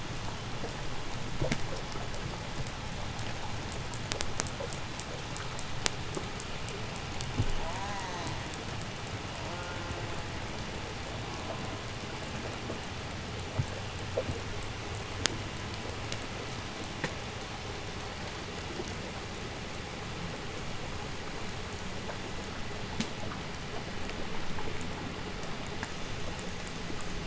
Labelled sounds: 7.5	8.5	killer whale, 0.34 to 7.0 kHz
9.2	10.4	killer whale, call S04, 0.20 to 3.6 kHz
11.1	12.1	killer whale, call S04, 0.31 to 1.3 kHz

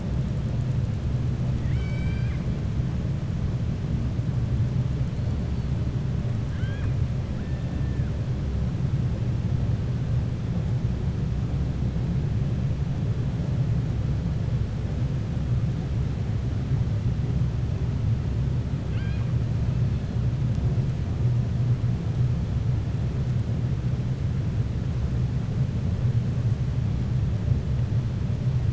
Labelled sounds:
1.5	2.4	killer whale, 1.5 to 6.1 kHz
6.4	7.0	killer whale, 1.1 to 3.8 kHz
18.8	19.3	killer whale, 1.1 to 4.9 kHz

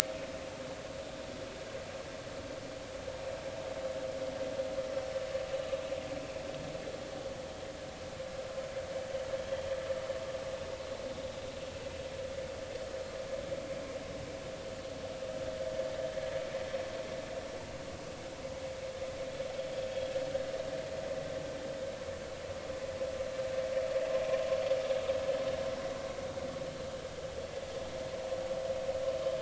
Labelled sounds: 9.4	9.7	vessel noise, 3.0 to 3.3 kHz

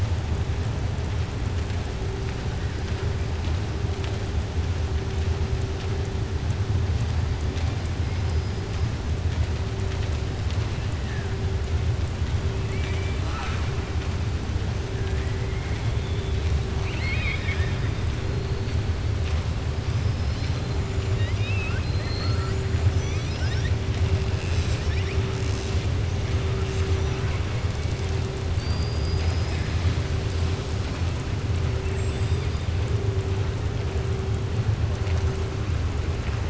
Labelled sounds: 12.6	13.7	killer whale, southern resident, 0.76 to 7.9 kHz
16.7	17.9	killer whale, southern resident, 1.2 to 5.0 kHz
21.1	22.6	killer whale, southern resident, 0.98 to 5.8 kHz
22.8	23.8	killer whale, southern resident, 1.5 to 6.0 kHz
28.5	30.0	killer whale, southern resident, 1.7 to 5.3 kHz

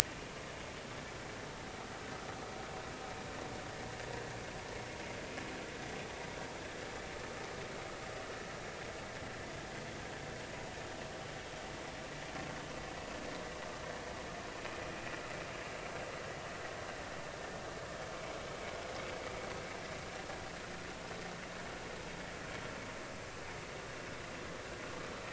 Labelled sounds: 0.0	0.3	vessel noise, 2.3 to 2.5 kHz

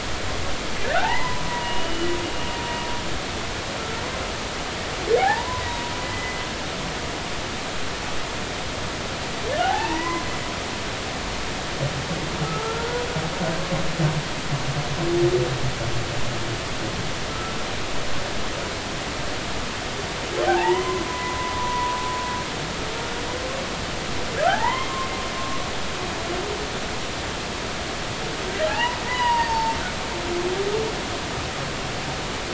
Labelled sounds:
0.8	2.1	humpback whale, 0.80 to 3.0 kHz
5.2	6.4	humpback whale, 0.80 to 2.1 kHz
9.6	10.2	humpback whale, 0.80 to 2.1 kHz
12.4	13.0	humpback whale, 1.2 to 1.5 kHz
17.3	17.5	humpback whale, 1.2 to 1.4 kHz
20.5	22.0	humpback whale, 0.80 to 2.1 kHz
24.4	25.7	humpback whale, 0.80 to 3.2 kHz
28.7	29.8	humpback whale, 0.80 to 5.0 kHz

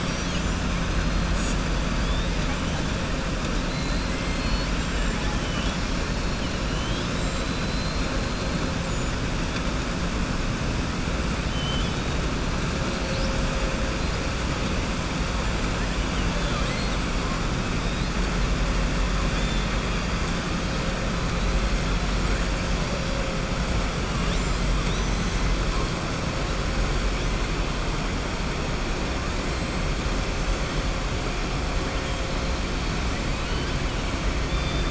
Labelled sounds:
3.6	8.1	killer whale, southern resident, 0.84 to 5.4 kHz
11.4	12.1	killer whale, southern resident, 2.6 to 3.8 kHz
16.3	17.0	killer whale, southern resident, 0.60 to 4.5 kHz
19.3	19.7	killer whale, southern resident, 2.4 to 4.2 kHz
24.1	24.7	killer whale, southern resident, 2.8 to 7.9 kHz

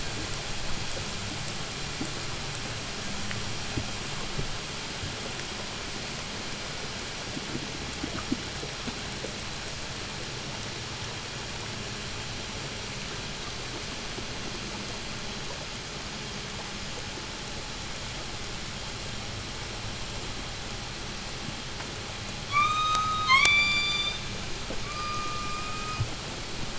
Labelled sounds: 14.9	20.3	vessel noise, 0 to 5.8 kHz
22.3	24.3	killer whale, call S16, 0.80 to 8.0 kHz
24.6	26.3	killer whale, call S16, 1.0 to 5.1 kHz

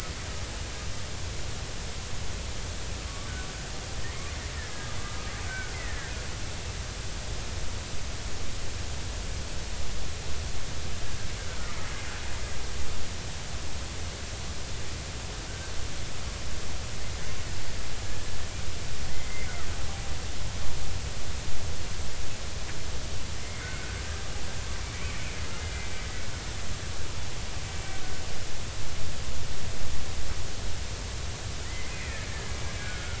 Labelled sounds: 5.4	6.1	killer whale, Bigg's (transient), 1.4 to 2.1 kHz
11.4	11.7	killer whale, Bigg's (transient), 1.4 to 1.6 kHz
15.5	15.7	killer whale, Bigg's (transient), 1.4 to 1.6 kHz
19.1	19.5	killer whale, Bigg's (transient), 1.9 to 2.3 kHz
23.4	24.0	killer whale, Bigg's (transient), 1.3 to 2.2 kHz
25.7	26.0	killer whale, Bigg's (transient), 2.2 to 2.4 kHz
31.6	33.1	killer whale, Bigg's (transient), 1.3 to 2.5 kHz

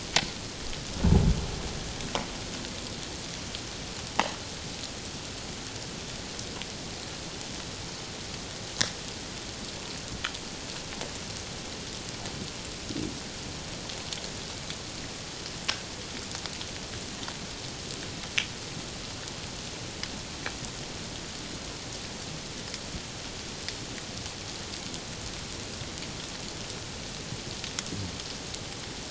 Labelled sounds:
1.0	1.3	humpback whale, 0.78 to 0.94 kHz
4.1	4.4	humpback whale, 0.78 to 1.1 kHz

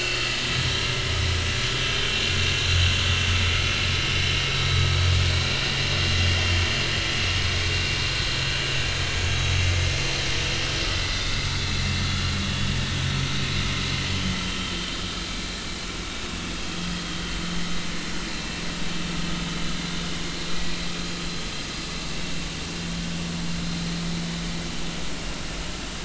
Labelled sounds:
4.5	4.9	vessel noise, 3.8 to 3.9 kHz
9.6	9.9	vessel noise, 2.0 to 2.2 kHz
11.1	11.8	vessel noise, 3.4 to 3.8 kHz
14.1	14.7	vessel noise, 2.9 to 3.2 kHz
16.6	17.0	vessel noise, 3.1 to 3.3 kHz
18.3	18.6	vessel noise, 2.6 to 2.7 kHz
19.5	19.7	vessel noise, 3.9 to 4.1 kHz

